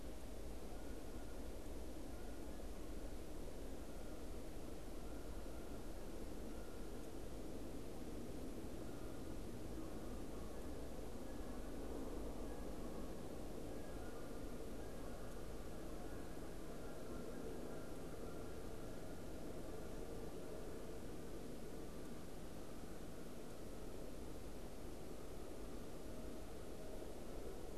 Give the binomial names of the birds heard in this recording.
Branta canadensis